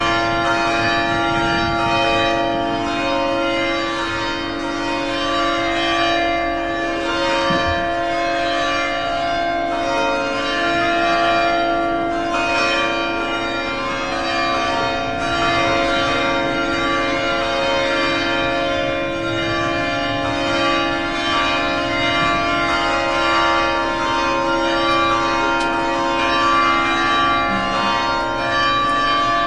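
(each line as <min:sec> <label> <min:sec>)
0:00.0 Church bells ringing loudly and repeatedly, fading into each other. 0:29.5
0:07.6 A short muted dull sound. 0:08.8
0:25.7 A short dropping sound. 0:26.4
0:28.4 Two faint clicking sounds. 0:29.5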